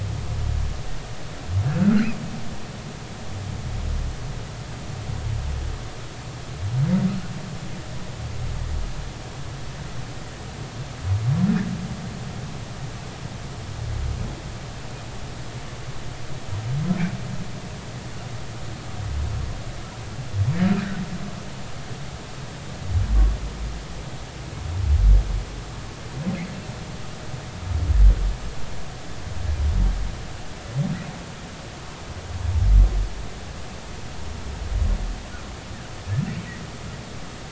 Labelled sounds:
1.8	2.1	humpback whale, 1.3 to 1.7 kHz

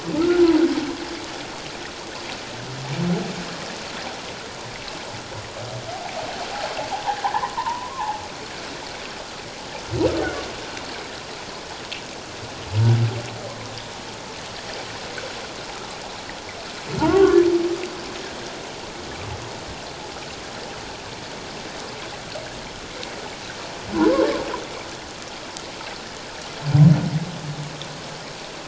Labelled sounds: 0.2	0.5	humpback whale, 1.2 to 1.5 kHz
7.2	8.2	humpback whale, 0.78 to 1.1 kHz
17.0	17.4	humpback whale, 0.81 to 1.2 kHz
23.9	24.2	humpback whale, 0.91 to 1.2 kHz

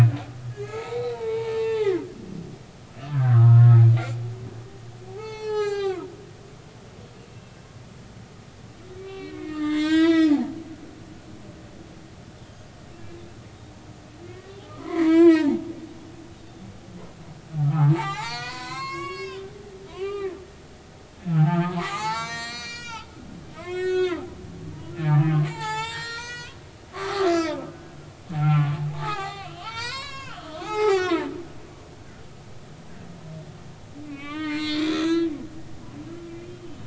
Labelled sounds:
0.5	2.1	humpback whale, 0.80 to 6.8 kHz
3.1	3.7	humpback whale, 0.90 to 2.0 kHz
5.1	6.1	humpback whale, 0.80 to 7.7 kHz
7.3	7.6	humpback whale, 2.6 to 2.8 kHz
9.0	10.3	humpback whale, 0.90 to 8.0 kHz
14.7	15.6	humpback whale, 0.80 to 4.9 kHz
17.7	19.5	humpback whale, 0.80 to 8.0 kHz
19.8	20.3	humpback whale, 0.90 to 4.9 kHz
21.3	24.3	humpback whale, 0.80 to 8.0 kHz
25.0	31.3	humpback whale, 0.80 to 8.0 kHz
34.0	35.3	humpback whale, 0.86 to 7.7 kHz
36.4	36.8	humpback whale, 2.9 to 3.3 kHz

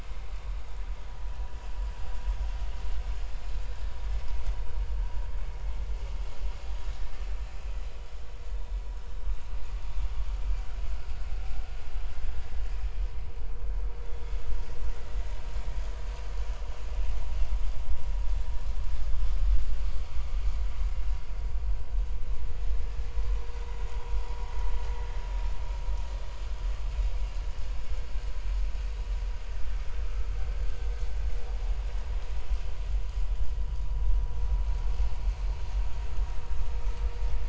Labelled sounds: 8.5	8.8	vessel noise, 3.5 to 3.7 kHz
14.0	14.3	vessel noise, 3.3 to 3.6 kHz
30.0	30.3	vessel noise, 1.2 to 1.4 kHz

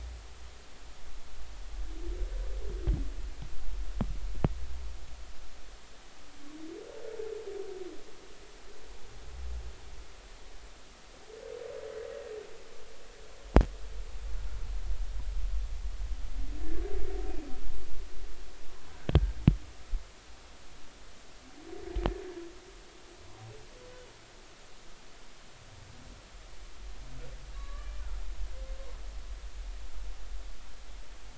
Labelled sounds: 27.5	27.9	humpback whale, 1.1 to 1.8 kHz

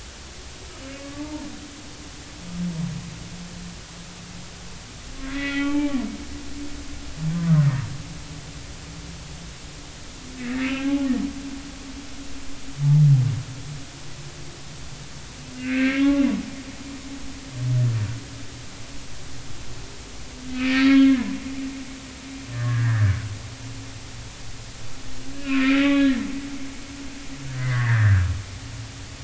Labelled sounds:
0.9	1.5	humpback whale, 0.83 to 2.3 kHz
5.3	6.0	humpback whale, 0.80 to 3.2 kHz
7.3	7.7	humpback whale, 1.1 to 1.3 kHz
10.4	11.1	humpback whale, 0.80 to 2.8 kHz
15.5	16.3	humpback whale, 1.1 to 2.8 kHz
20.5	21.3	humpback whale, 1.3 to 4.9 kHz
22.5	23.1	humpback whale, 1.1 to 1.9 kHz
25.4	26.1	humpback whale, 1.3 to 3.8 kHz
27.5	28.3	humpback whale, 1.4 to 2.1 kHz

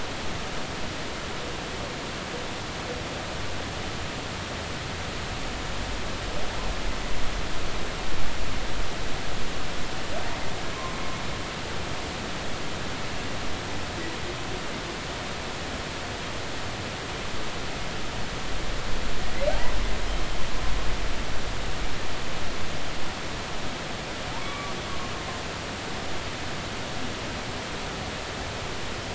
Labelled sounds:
19.5	19.8	humpback whale, 0.80 to 1.1 kHz
24.3	24.8	humpback whale, 0.83 to 2.4 kHz

